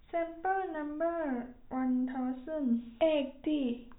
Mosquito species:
no mosquito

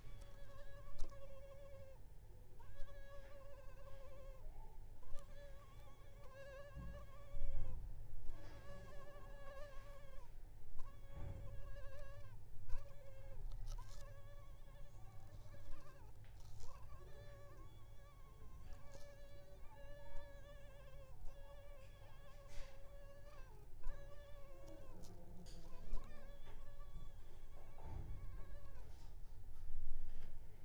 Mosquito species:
Culex pipiens complex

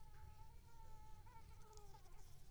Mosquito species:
Anopheles gambiae s.l.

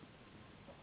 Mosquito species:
Anopheles gambiae s.s.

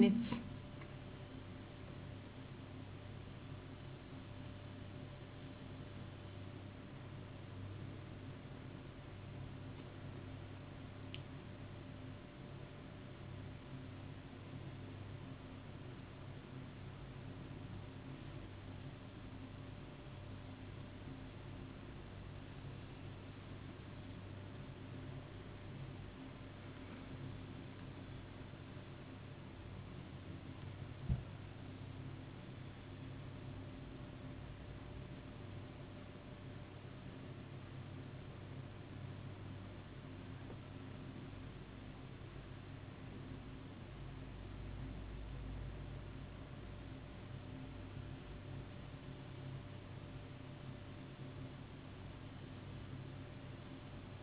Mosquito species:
no mosquito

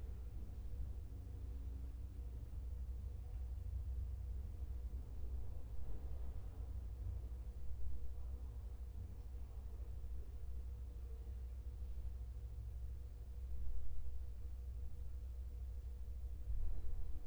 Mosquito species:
no mosquito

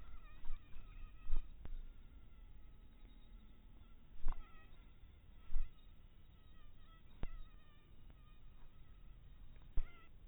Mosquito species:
mosquito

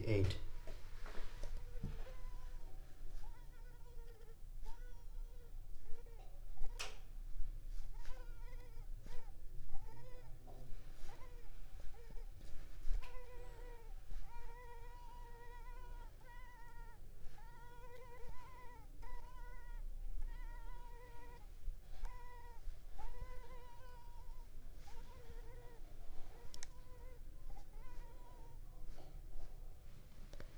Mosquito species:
Culex pipiens complex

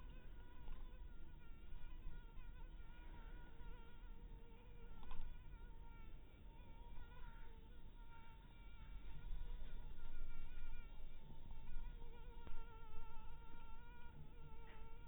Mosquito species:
mosquito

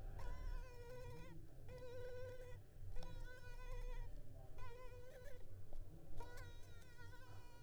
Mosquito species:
Culex pipiens complex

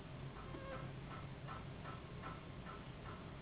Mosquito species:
Anopheles gambiae s.s.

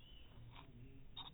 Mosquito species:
no mosquito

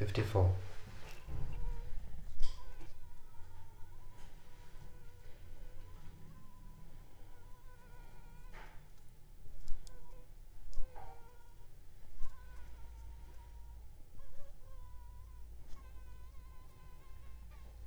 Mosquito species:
Anopheles funestus s.s.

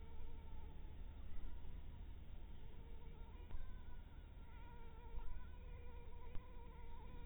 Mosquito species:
Anopheles harrisoni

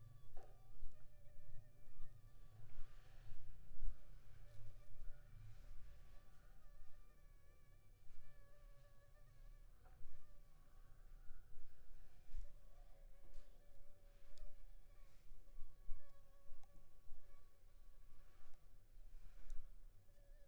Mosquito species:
Anopheles funestus s.s.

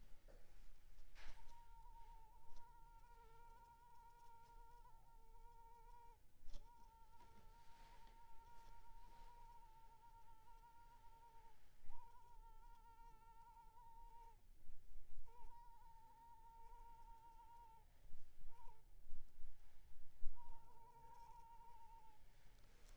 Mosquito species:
Culex pipiens complex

